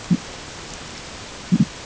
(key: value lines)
label: ambient
recorder: HydroMoth